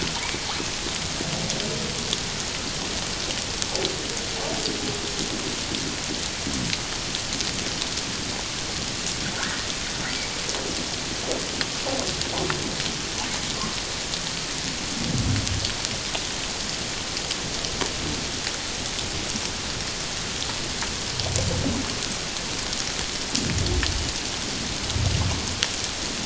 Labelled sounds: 9.4	9.7	humpback whale, 1.3 to 1.9 kHz

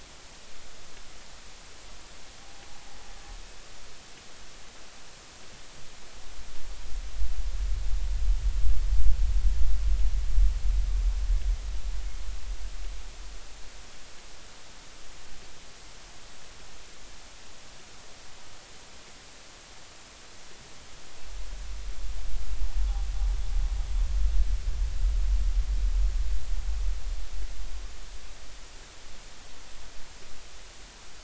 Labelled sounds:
3.4	3.7	humpback whale, 0.80 to 0.90 kHz

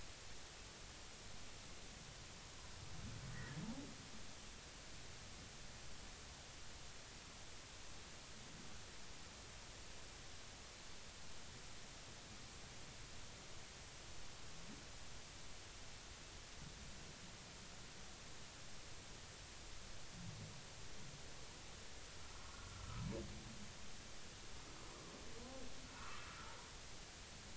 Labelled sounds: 22.4	23.0	humpback whale, 1.1 to 1.5 kHz
26.0	26.3	humpback whale, 1.0 to 1.5 kHz

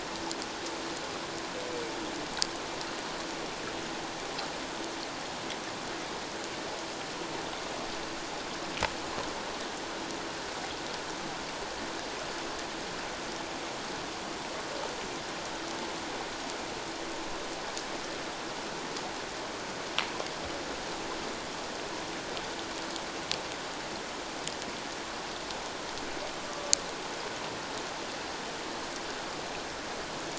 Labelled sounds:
26.5	26.7	humpback whale, 1.1 to 1.2 kHz

